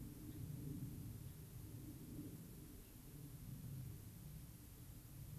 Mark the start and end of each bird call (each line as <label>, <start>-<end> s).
Gray-crowned Rosy-Finch (Leucosticte tephrocotis), 0.3-0.4 s
Gray-crowned Rosy-Finch (Leucosticte tephrocotis), 1.2-1.4 s
Gray-crowned Rosy-Finch (Leucosticte tephrocotis), 2.8-3.0 s